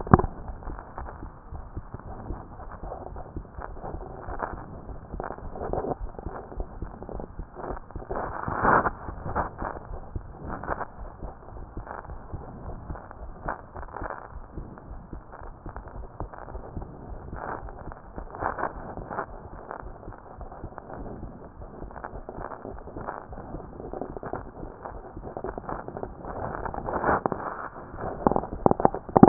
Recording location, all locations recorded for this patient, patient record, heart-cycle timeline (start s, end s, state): aortic valve (AV)
aortic valve (AV)+pulmonary valve (PV)+tricuspid valve (TV)+mitral valve (MV)
#Age: Child
#Sex: Female
#Height: 114.0 cm
#Weight: 19.9 kg
#Pregnancy status: False
#Murmur: Absent
#Murmur locations: nan
#Most audible location: nan
#Systolic murmur timing: nan
#Systolic murmur shape: nan
#Systolic murmur grading: nan
#Systolic murmur pitch: nan
#Systolic murmur quality: nan
#Diastolic murmur timing: nan
#Diastolic murmur shape: nan
#Diastolic murmur grading: nan
#Diastolic murmur pitch: nan
#Diastolic murmur quality: nan
#Outcome: Abnormal
#Campaign: 2014 screening campaign
0.00	14.34	unannotated
14.34	14.44	S1
14.44	14.56	systole
14.56	14.66	S2
14.66	14.90	diastole
14.90	15.00	S1
15.00	15.14	systole
15.14	15.24	S2
15.24	15.44	diastole
15.44	15.54	S1
15.54	15.66	systole
15.66	15.74	S2
15.74	15.96	diastole
15.96	16.08	S1
16.08	16.20	systole
16.20	16.30	S2
16.30	16.52	diastole
16.52	16.62	S1
16.62	16.76	systole
16.76	16.86	S2
16.86	17.10	diastole
17.10	17.20	S1
17.20	17.32	systole
17.32	17.42	S2
17.42	17.62	diastole
17.62	17.74	S1
17.74	17.86	systole
17.86	17.94	S2
17.94	18.16	diastole
18.16	18.28	S1
18.28	18.42	systole
18.42	18.52	S2
18.52	18.76	diastole
18.76	29.28	unannotated